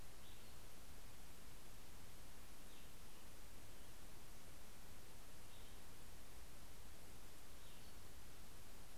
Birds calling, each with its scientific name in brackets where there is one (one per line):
Cassin's Vireo (Vireo cassinii)